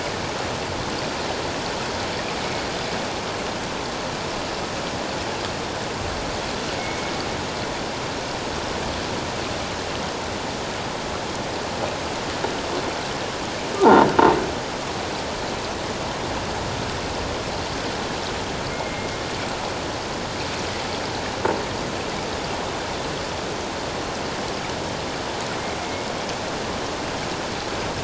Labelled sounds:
6.8	7.1	killer whale, 2.1 to 2.3 kHz
13.8	14.1	croaking sound likely from a nearby submerged object, 0.78 to 1.1 kHz
18.7	19.1	killer whale, 2.1 to 2.2 kHz
25.8	26.1	killer whale, 2.1 to 2.3 kHz

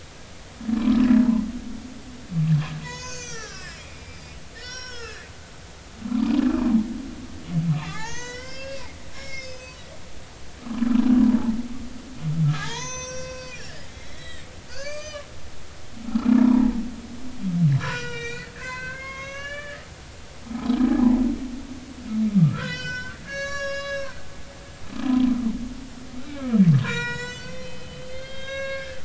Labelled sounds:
2.8	5.3	humpback whale, 0.93 to 8.0 kHz
7.7	9.8	humpback whale, 0.80 to 6.7 kHz
10.6	10.9	humpback whale, 0.96 to 1.4 kHz
12.4	15.3	humpback whale, 0.80 to 7.8 kHz
16.1	16.8	humpback whale, 0.80 to 1.4 kHz
17.8	19.8	humpback whale, 0.93 to 6.7 kHz
20.4	20.8	humpback whale, 0.80 to 1.4 kHz
22.4	24.2	humpback whale, 1.1 to 7.4 kHz
25.0	25.3	humpback whale, 0.96 to 1.1 kHz
26.3	29.0	humpback whale, 0.90 to 7.6 kHz

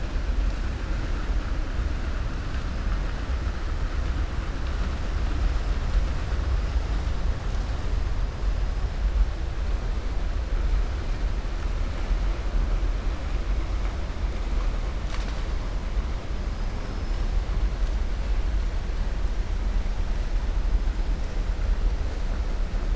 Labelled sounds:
16.8	17.2	killer whale, 5.1 to 5.7 kHz

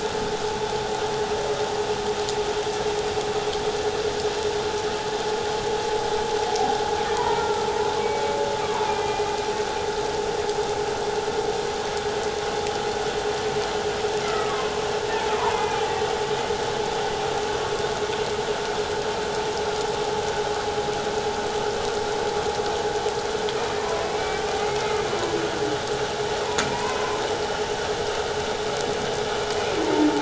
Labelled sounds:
7.2	8.2	humpback whale, 0.88 to 2.3 kHz
8.6	9.3	humpback whale, 0.91 to 2.6 kHz
14.2	14.8	humpback whale, 0.97 to 2.2 kHz
15.4	15.9	humpback whale, 0.88 to 2.5 kHz
23.8	24.4	humpback whale, 0.94 to 2.3 kHz
26.7	27.2	humpback whale, 0.91 to 1.1 kHz
29.8	30.1	humpback whale, 0.88 to 1.0 kHz

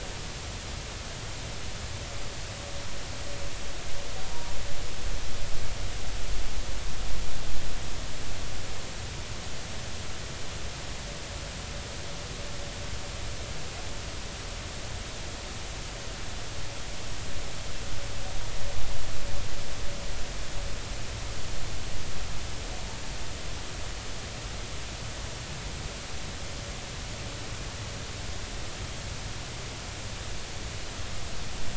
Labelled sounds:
4.3	4.5	humpback whale, 0.90 to 0.99 kHz

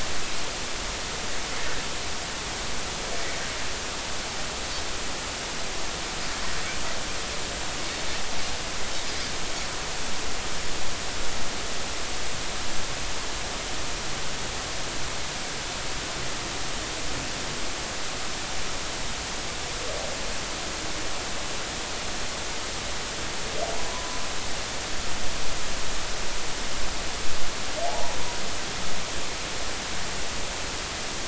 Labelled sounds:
23.8	24.2	humpback whale, 0.93 to 1.1 kHz
27.8	28.2	humpback whale, 0.80 to 1.1 kHz

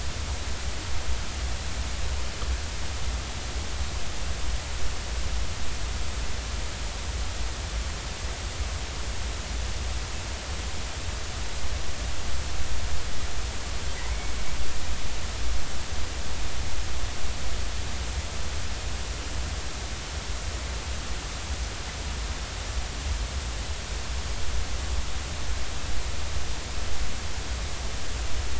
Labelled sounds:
14.0	14.3	killer whale, northern resident, 1.9 to 2.3 kHz

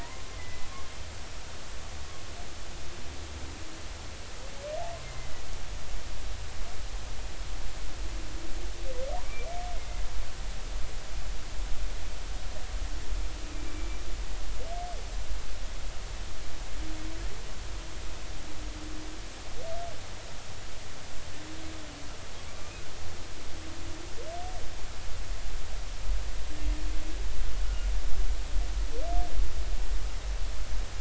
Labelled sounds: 0.0	0.7	humpback whale, 0.90 to 2.1 kHz
5.0	5.3	humpback whale, 2.0 to 2.2 kHz
13.7	14.0	humpback whale, 2.3 to 2.4 kHz

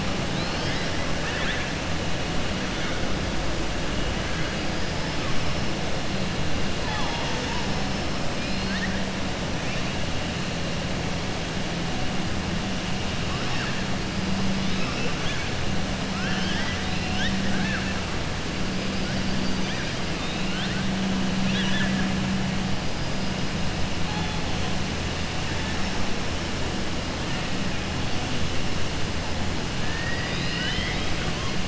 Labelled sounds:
1.2	1.7	killer whale, southern resident, 1.1 to 3.9 kHz
16.1	16.8	killer whale, southern resident, 0.88 to 6.0 kHz
17.4	17.9	killer whale, southern resident, 0.84 to 3.5 kHz
19.3	19.9	killer whale, southern resident, 1.6 to 5.1 kHz
21.4	22.1	killer whale, southern resident, 0.97 to 5.9 kHz
29.8	31.2	killer whale, southern resident, 1.5 to 5.2 kHz

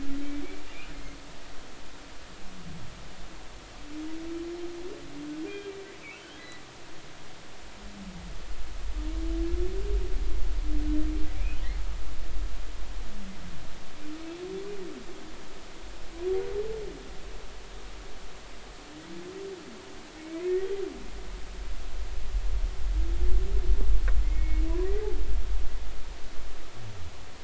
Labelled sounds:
6.2	6.4	humpback whale, 2.9 to 3.3 kHz
20.3	20.7	humpback whale, 1.8 to 2.2 kHz
24.2	24.6	humpback whale, 2.0 to 2.3 kHz

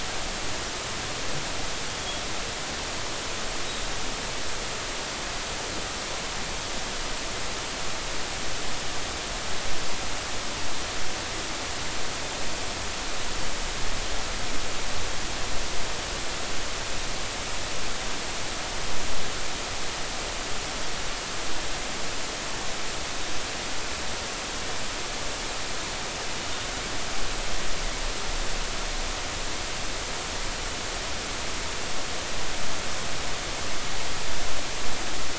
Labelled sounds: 1.9	2.2	killer whale, northern resident, G clan, 3.2 to 3.4 kHz

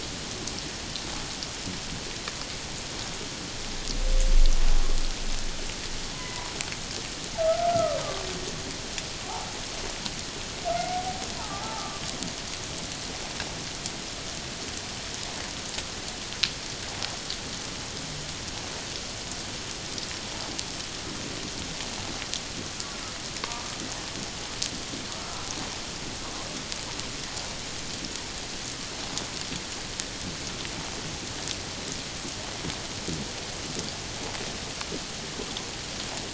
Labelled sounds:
6.1	6.5	humpback whale, 0.94 to 2.1 kHz
7.4	8.0	humpback whale, 1.1 to 1.5 kHz
10.8	12.0	humpback whale, 0.78 to 1.4 kHz

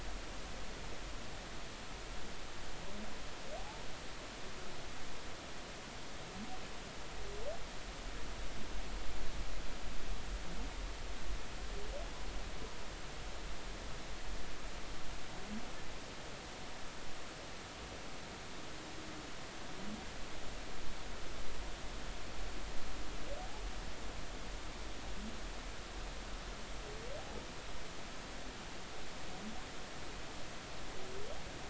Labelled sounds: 3.6	3.8	humpback whale, 0.80 to 0.96 kHz

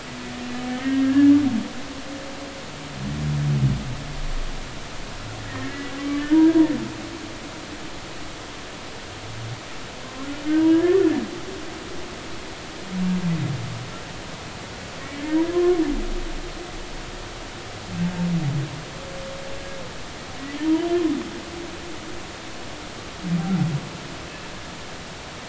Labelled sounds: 0.7	1.3	humpback whale, 1.6 to 1.9 kHz
5.5	5.7	humpback whale, 1.8 to 2.0 kHz
6.3	6.6	humpback whale, 1.5 to 1.7 kHz
10.7	11.1	humpback whale, 1.6 to 1.9 kHz
15.2	15.8	humpback whale, 0.99 to 2.0 kHz

